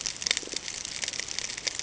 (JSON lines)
{"label": "ambient", "recorder": "HydroMoth"}